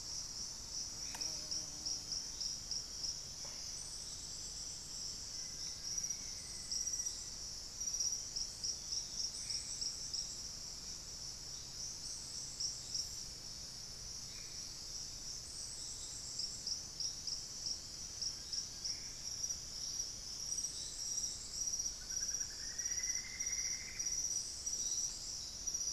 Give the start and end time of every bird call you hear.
0.9s-1.6s: Black-faced Antthrush (Formicarius analis)
2.3s-5.3s: unidentified bird
5.3s-7.5s: Black-faced Antthrush (Formicarius analis)
8.7s-10.4s: unidentified bird
9.3s-9.9s: Black-faced Antthrush (Formicarius analis)
14.2s-14.7s: Black-faced Antthrush (Formicarius analis)
17.5s-21.2s: unidentified bird
18.7s-19.4s: Black-faced Antthrush (Formicarius analis)
21.9s-24.3s: Plumbeous Antbird (Myrmelastes hyperythrus)

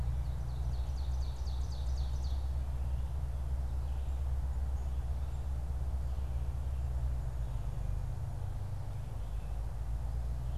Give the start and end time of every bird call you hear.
0.0s-2.6s: Ovenbird (Seiurus aurocapilla)

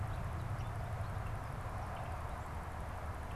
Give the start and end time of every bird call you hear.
0.0s-3.4s: unidentified bird

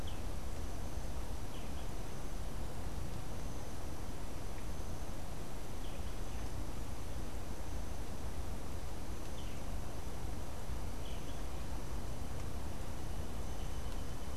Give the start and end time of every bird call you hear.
0.0s-6.7s: Boat-billed Flycatcher (Megarynchus pitangua)

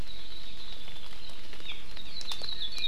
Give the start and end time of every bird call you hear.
0.0s-1.4s: Hawaii Creeper (Loxops mana)
1.6s-1.8s: Hawaii Amakihi (Chlorodrepanis virens)
1.9s-2.9s: Hawaii Akepa (Loxops coccineus)

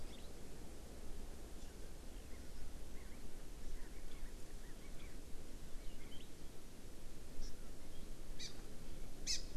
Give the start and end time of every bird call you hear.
0.0s-0.3s: Hawaii Amakihi (Chlorodrepanis virens)
2.9s-3.2s: Chinese Hwamei (Garrulax canorus)
3.6s-4.3s: Chinese Hwamei (Garrulax canorus)
4.6s-5.2s: Chinese Hwamei (Garrulax canorus)
7.4s-7.5s: Hawaii Amakihi (Chlorodrepanis virens)
8.4s-8.5s: Hawaii Amakihi (Chlorodrepanis virens)
9.3s-9.4s: Hawaii Amakihi (Chlorodrepanis virens)

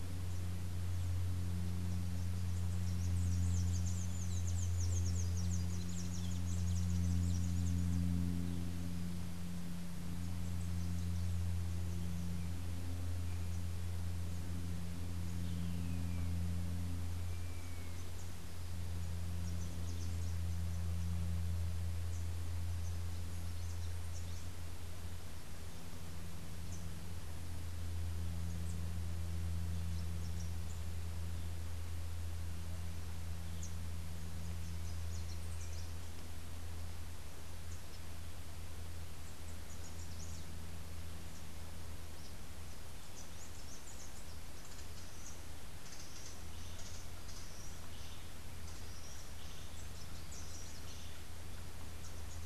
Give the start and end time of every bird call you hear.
2.7s-8.1s: Rufous-capped Warbler (Basileuterus rufifrons)
15.6s-18.1s: Gray Hawk (Buteo plagiatus)
33.5s-36.3s: Rufous-capped Warbler (Basileuterus rufifrons)
39.3s-40.7s: Rufous-capped Warbler (Basileuterus rufifrons)
43.0s-44.4s: Rufous-capped Warbler (Basileuterus rufifrons)
49.3s-51.3s: Rufous-capped Warbler (Basileuterus rufifrons)

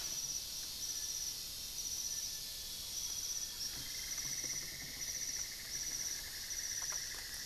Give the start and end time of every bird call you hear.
0.0s-7.5s: Little Tinamou (Crypturellus soui)
1.9s-4.1s: Amazonian Grosbeak (Cyanoloxia rothschildii)
2.8s-5.4s: Thrush-like Wren (Campylorhynchus turdinus)
3.5s-7.5s: Cinnamon-throated Woodcreeper (Dendrexetastes rufigula)

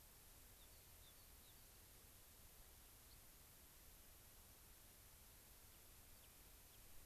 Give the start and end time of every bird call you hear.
0.5s-1.7s: Rock Wren (Salpinctes obsoletus)
3.1s-3.2s: unidentified bird
5.7s-7.0s: Rock Wren (Salpinctes obsoletus)

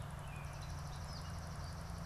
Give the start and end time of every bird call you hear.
0.0s-2.1s: Swamp Sparrow (Melospiza georgiana)

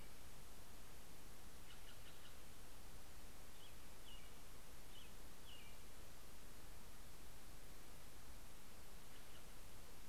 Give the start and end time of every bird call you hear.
1.4s-2.4s: Steller's Jay (Cyanocitta stelleri)
2.4s-7.2s: American Robin (Turdus migratorius)
9.1s-9.7s: Steller's Jay (Cyanocitta stelleri)

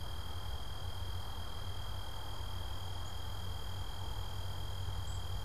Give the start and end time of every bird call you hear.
2.8s-5.4s: Black-capped Chickadee (Poecile atricapillus)

